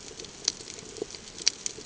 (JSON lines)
{"label": "ambient", "recorder": "HydroMoth"}